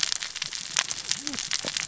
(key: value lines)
label: biophony, cascading saw
recorder: SoundTrap 600 or HydroMoth